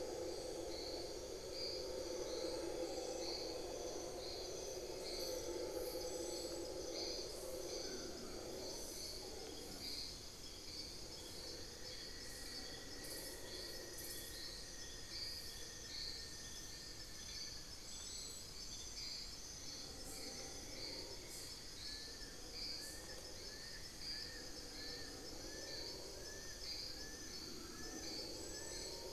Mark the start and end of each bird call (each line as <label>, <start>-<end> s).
unidentified bird, 7.7-8.6 s
unidentified bird, 11.0-18.0 s
Fasciated Antshrike (Cymbilaimus lineatus), 21.7-29.1 s
unidentified bird, 26.9-28.5 s